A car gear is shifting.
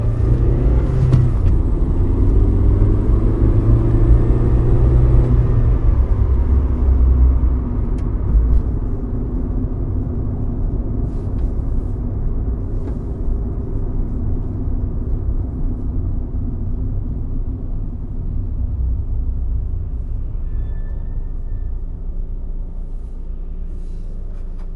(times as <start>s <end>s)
0.1s 1.7s